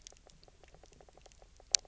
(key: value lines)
label: biophony, knock croak
recorder: SoundTrap 300